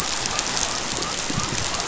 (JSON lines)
{"label": "biophony", "recorder": "SoundTrap 500"}